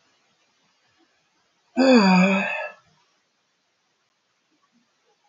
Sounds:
Sigh